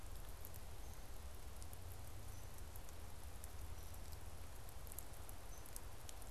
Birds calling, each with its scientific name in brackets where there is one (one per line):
Hairy Woodpecker (Dryobates villosus)